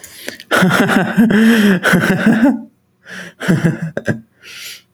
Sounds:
Laughter